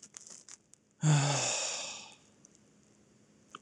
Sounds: Sigh